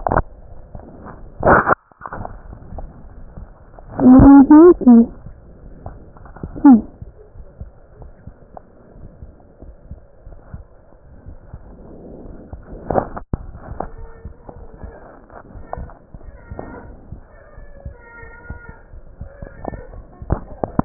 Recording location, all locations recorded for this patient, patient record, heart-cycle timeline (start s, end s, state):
aortic valve (AV)
aortic valve (AV)+pulmonary valve (PV)+tricuspid valve (TV)+mitral valve (MV)
#Age: Child
#Sex: Male
#Height: 131.0 cm
#Weight: 34.2 kg
#Pregnancy status: False
#Murmur: Unknown
#Murmur locations: nan
#Most audible location: nan
#Systolic murmur timing: nan
#Systolic murmur shape: nan
#Systolic murmur grading: nan
#Systolic murmur pitch: nan
#Systolic murmur quality: nan
#Diastolic murmur timing: nan
#Diastolic murmur shape: nan
#Diastolic murmur grading: nan
#Diastolic murmur pitch: nan
#Diastolic murmur quality: nan
#Outcome: Normal
#Campaign: 2015 screening campaign
0.00	7.09	unannotated
7.09	7.33	diastole
7.33	7.46	S1
7.46	7.59	systole
7.59	7.68	S2
7.68	8.00	diastole
8.00	8.08	S1
8.08	8.25	systole
8.25	8.34	S2
8.34	8.98	diastole
8.98	9.12	S1
9.12	9.20	systole
9.20	9.28	S2
9.28	9.66	diastole
9.66	9.74	S1
9.74	9.88	systole
9.88	10.00	S2
10.00	10.26	diastole
10.26	10.38	S1
10.38	10.52	systole
10.52	10.62	S2
10.62	11.24	diastole
11.24	11.36	S1
11.36	11.50	systole
11.50	11.64	S2
11.64	12.23	diastole
12.23	12.36	S1
12.36	12.42	systole
12.42	20.85	unannotated